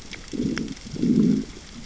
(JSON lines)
{"label": "biophony, growl", "recorder": "SoundTrap 600 or HydroMoth"}